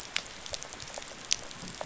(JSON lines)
{"label": "biophony, rattle response", "recorder": "SoundTrap 500"}